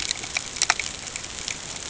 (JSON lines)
{"label": "ambient", "recorder": "HydroMoth"}